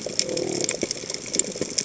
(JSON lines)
{"label": "biophony", "recorder": "HydroMoth"}